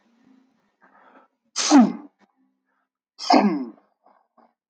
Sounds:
Sneeze